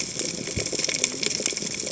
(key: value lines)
label: biophony, cascading saw
recorder: HydroMoth